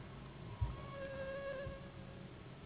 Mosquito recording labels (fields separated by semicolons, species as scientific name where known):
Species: Anopheles gambiae s.s.; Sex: female; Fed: unfed; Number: one; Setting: insect culture